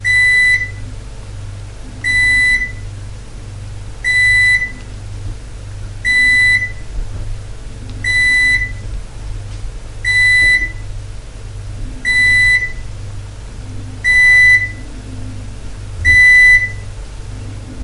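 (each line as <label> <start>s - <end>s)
A microwave beeps loudly in a steady pattern. 0.0s - 1.0s
A microwave beeps loudly in a steady pattern. 2.0s - 2.9s
A microwave beeps loudly in a steady pattern. 4.0s - 4.9s
A microwave beeps loudly in a steady pattern. 5.9s - 7.0s
A microwave beeps loudly in a steady pattern. 7.9s - 9.0s
A microwave beeps loudly in a steady pattern. 9.8s - 10.9s
A microwave beeps loudly in a steady pattern. 11.9s - 12.9s
A microwave beeps loudly in a steady pattern. 13.9s - 14.9s
A microwave beeps loudly in a steady pattern. 15.9s - 17.1s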